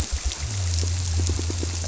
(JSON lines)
{"label": "biophony", "recorder": "SoundTrap 300"}